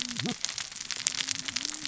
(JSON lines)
{"label": "biophony, cascading saw", "recorder": "SoundTrap 600 or HydroMoth"}